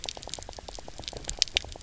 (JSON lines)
{"label": "biophony, knock croak", "recorder": "SoundTrap 300"}